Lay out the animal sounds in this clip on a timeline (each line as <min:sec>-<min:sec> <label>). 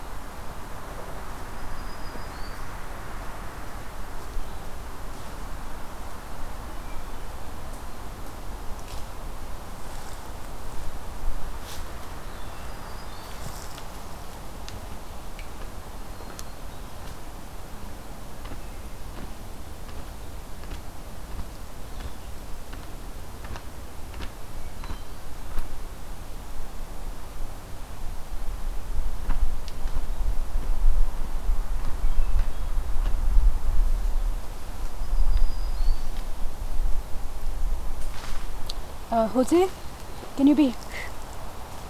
0:01.2-0:02.7 Black-throated Green Warbler (Setophaga virens)
0:06.7-0:07.5 Hermit Thrush (Catharus guttatus)
0:12.0-0:13.6 Black-throated Green Warbler (Setophaga virens)
0:15.6-0:17.1 Black-throated Green Warbler (Setophaga virens)
0:24.5-0:25.3 Hermit Thrush (Catharus guttatus)
0:31.7-0:33.0 Hermit Thrush (Catharus guttatus)
0:34.8-0:36.4 Black-throated Green Warbler (Setophaga virens)